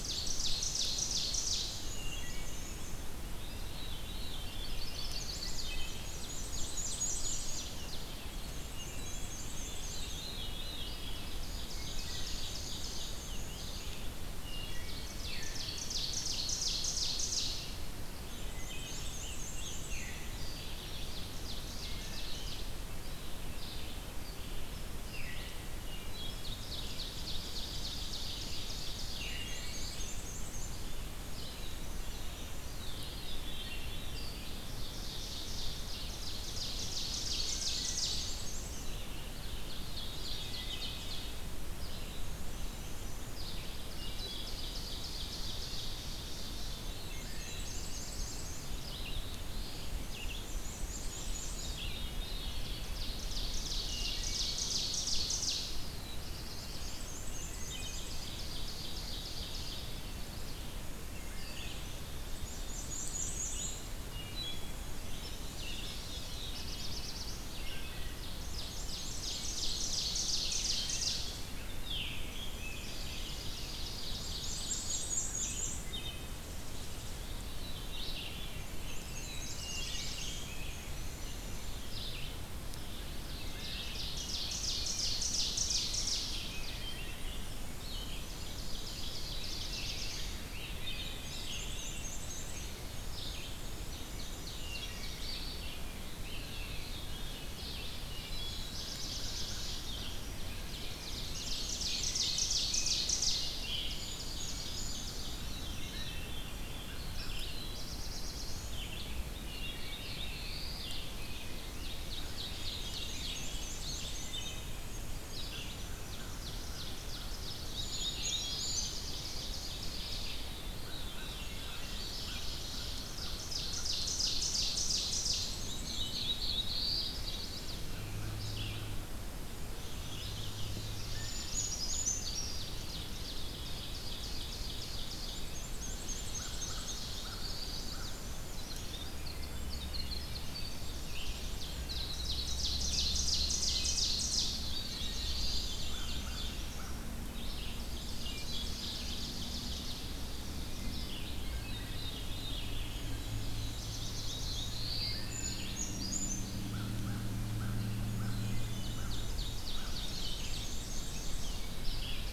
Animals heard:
Winter Wren (Troglodytes hiemalis)
Ovenbird (Seiurus aurocapilla)
Red-eyed Vireo (Vireo olivaceus)
Wood Thrush (Hylocichla mustelina)
Chestnut-sided Warbler (Setophaga pensylvanica)
Black-throated Blue Warbler (Setophaga caerulescens)
American Crow (Corvus brachyrhynchos)
Veery (Catharus fuscescens)
Scarlet Tanager (Piranga olivacea)
Brown Creeper (Certhia americana)
Rose-breasted Grosbeak (Pheucticus ludovicianus)
Black-and-white Warbler (Mniotilta varia)

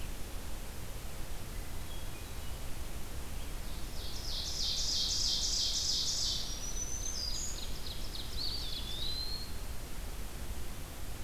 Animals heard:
Hermit Thrush (Catharus guttatus)
Red-eyed Vireo (Vireo olivaceus)
Ovenbird (Seiurus aurocapilla)
Black-throated Green Warbler (Setophaga virens)
Eastern Wood-Pewee (Contopus virens)

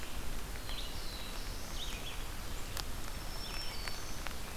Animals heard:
Black-throated Blue Warbler (Setophaga caerulescens)
Black-throated Green Warbler (Setophaga virens)
Red-eyed Vireo (Vireo olivaceus)

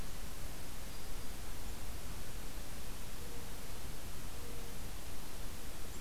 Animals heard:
Black-throated Green Warbler (Setophaga virens)

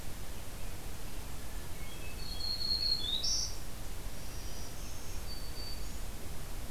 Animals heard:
Hermit Thrush (Catharus guttatus)
Black-throated Green Warbler (Setophaga virens)

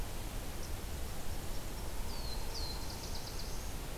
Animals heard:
Black-throated Blue Warbler (Setophaga caerulescens)

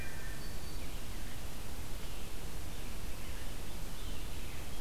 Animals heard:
Black-throated Green Warbler (Setophaga virens)
Red-eyed Vireo (Vireo olivaceus)

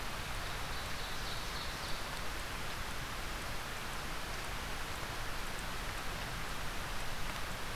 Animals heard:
Ovenbird (Seiurus aurocapilla)

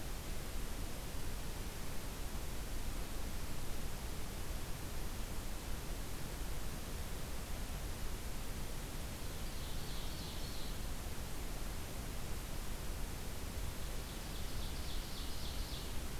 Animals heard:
Ovenbird (Seiurus aurocapilla)

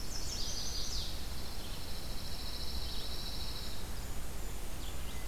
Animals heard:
Pine Warbler (Setophaga pinus)
Blackburnian Warbler (Setophaga fusca)
Chestnut-sided Warbler (Setophaga pensylvanica)
Red-eyed Vireo (Vireo olivaceus)

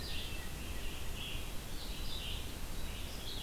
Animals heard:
Hermit Thrush (Catharus guttatus)
Red-eyed Vireo (Vireo olivaceus)

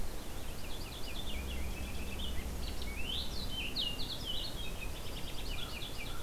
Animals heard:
American Crow (Corvus brachyrhynchos)
Purple Finch (Haemorhous purpureus)

